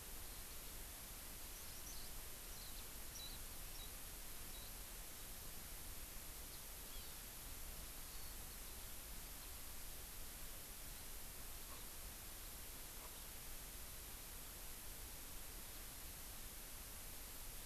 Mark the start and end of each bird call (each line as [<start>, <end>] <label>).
[1.81, 2.11] Eurasian Skylark (Alauda arvensis)
[3.11, 3.31] Warbling White-eye (Zosterops japonicus)
[3.71, 3.91] Warbling White-eye (Zosterops japonicus)
[4.41, 4.71] Warbling White-eye (Zosterops japonicus)
[6.91, 7.21] Hawaii Amakihi (Chlorodrepanis virens)